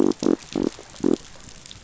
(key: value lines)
label: biophony
recorder: SoundTrap 500